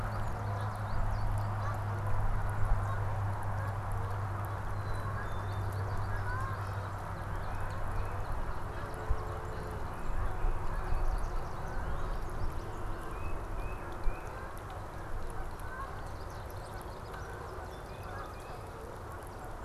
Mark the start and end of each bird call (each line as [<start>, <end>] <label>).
[0.00, 19.65] Canada Goose (Branta canadensis)
[4.59, 5.79] Black-capped Chickadee (Poecile atricapillus)
[7.29, 8.39] Tufted Titmouse (Baeolophus bicolor)
[9.79, 11.09] Tufted Titmouse (Baeolophus bicolor)
[12.89, 14.29] Tufted Titmouse (Baeolophus bicolor)
[17.69, 18.69] Tufted Titmouse (Baeolophus bicolor)